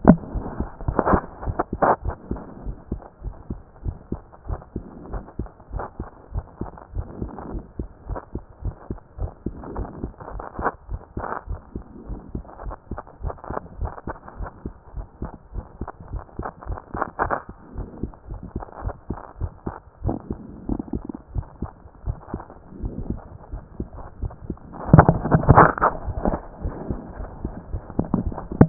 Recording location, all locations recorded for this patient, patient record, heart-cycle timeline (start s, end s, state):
pulmonary valve (PV)
pulmonary valve (PV)+tricuspid valve (TV)+mitral valve (MV)
#Age: Child
#Sex: Male
#Height: 145.0 cm
#Weight: 28.3 kg
#Pregnancy status: False
#Murmur: Present
#Murmur locations: mitral valve (MV)+pulmonary valve (PV)+tricuspid valve (TV)
#Most audible location: tricuspid valve (TV)
#Systolic murmur timing: Holosystolic
#Systolic murmur shape: Plateau
#Systolic murmur grading: I/VI
#Systolic murmur pitch: Low
#Systolic murmur quality: Harsh
#Diastolic murmur timing: nan
#Diastolic murmur shape: nan
#Diastolic murmur grading: nan
#Diastolic murmur pitch: nan
#Diastolic murmur quality: nan
#Outcome: Abnormal
#Campaign: 2014 screening campaign
0.00	1.97	unannotated
1.97	2.04	diastole
2.04	2.14	S1
2.14	2.30	systole
2.30	2.40	S2
2.40	2.64	diastole
2.64	2.76	S1
2.76	2.90	systole
2.90	3.00	S2
3.00	3.24	diastole
3.24	3.34	S1
3.34	3.50	systole
3.50	3.60	S2
3.60	3.84	diastole
3.84	3.96	S1
3.96	4.10	systole
4.10	4.20	S2
4.20	4.48	diastole
4.48	4.60	S1
4.60	4.74	systole
4.74	4.84	S2
4.84	5.12	diastole
5.12	5.24	S1
5.24	5.38	systole
5.38	5.48	S2
5.48	5.72	diastole
5.72	5.84	S1
5.84	5.98	systole
5.98	6.08	S2
6.08	6.34	diastole
6.34	6.44	S1
6.44	6.60	systole
6.60	6.70	S2
6.70	6.94	diastole
6.94	7.06	S1
7.06	7.20	systole
7.20	7.30	S2
7.30	7.52	diastole
7.52	7.64	S1
7.64	7.78	systole
7.78	7.88	S2
7.88	8.08	diastole
8.08	8.20	S1
8.20	8.34	systole
8.34	8.42	S2
8.42	8.64	diastole
8.64	8.74	S1
8.74	8.90	systole
8.90	9.00	S2
9.00	9.20	diastole
9.20	9.30	S1
9.30	9.44	systole
9.44	9.54	S2
9.54	9.76	diastole
9.76	9.88	S1
9.88	10.02	systole
10.02	10.12	S2
10.12	10.32	diastole
10.32	10.44	S1
10.44	10.58	systole
10.58	10.70	S2
10.70	10.90	diastole
10.90	11.00	S1
11.00	11.16	systole
11.16	11.26	S2
11.26	11.48	diastole
11.48	11.60	S1
11.60	11.74	systole
11.74	11.84	S2
11.84	12.08	diastole
12.08	12.20	S1
12.20	12.34	systole
12.34	12.44	S2
12.44	12.64	diastole
12.64	12.76	S1
12.76	12.90	systole
12.90	13.00	S2
13.00	13.22	diastole
13.22	13.34	S1
13.34	13.50	systole
13.50	13.58	S2
13.58	13.80	diastole
13.80	13.92	S1
13.92	14.06	systole
14.06	14.16	S2
14.16	14.38	diastole
14.38	14.50	S1
14.50	14.64	systole
14.64	14.74	S2
14.74	14.96	diastole
14.96	15.06	S1
15.06	15.22	systole
15.22	15.32	S2
15.32	15.54	diastole
15.54	15.66	S1
15.66	15.80	systole
15.80	15.88	S2
15.88	16.12	diastole
16.12	16.22	S1
16.22	16.38	systole
16.38	16.48	S2
16.48	16.68	diastole
16.68	16.78	S1
16.78	16.94	systole
16.94	17.04	S2
17.04	17.24	diastole
17.24	17.34	S1
17.34	17.46	systole
17.46	17.54	S2
17.54	17.76	diastole
17.76	17.88	S1
17.88	18.02	systole
18.02	18.12	S2
18.12	18.30	diastole
18.30	18.40	S1
18.40	18.54	systole
18.54	18.64	S2
18.64	18.82	diastole
18.82	18.94	S1
18.94	19.10	systole
19.10	19.18	S2
19.18	19.40	diastole
19.40	19.52	S1
19.52	19.66	systole
19.66	19.74	S2
19.74	20.04	diastole
20.04	20.18	S1
20.18	20.30	systole
20.30	20.38	S2
20.38	20.68	diastole
20.68	20.80	S1
20.80	20.94	systole
20.94	21.02	S2
21.02	21.34	diastole
21.34	21.46	S1
21.46	21.62	systole
21.62	21.70	S2
21.70	22.06	diastole
22.06	22.18	S1
22.18	22.32	systole
22.32	22.42	S2
22.42	22.82	diastole
22.82	22.94	S1
22.94	23.08	systole
23.08	23.20	S2
23.20	23.52	diastole
23.52	23.64	S1
23.64	23.80	systole
23.80	23.88	S2
23.88	24.22	diastole
24.22	24.32	S1
24.32	24.48	systole
24.48	24.56	S2
24.56	24.90	diastole
24.90	28.69	unannotated